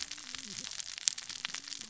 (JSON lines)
{"label": "biophony, cascading saw", "recorder": "SoundTrap 600 or HydroMoth"}